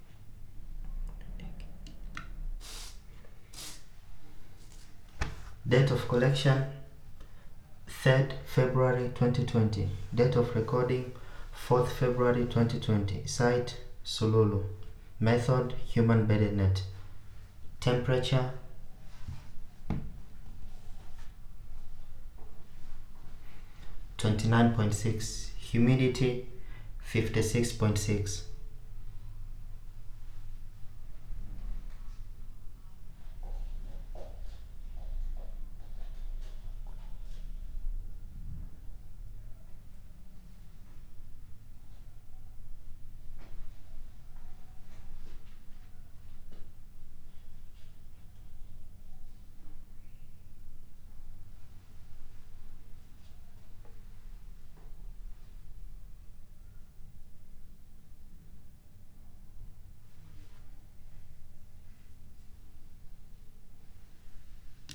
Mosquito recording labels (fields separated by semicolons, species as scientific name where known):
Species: no mosquito; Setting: cup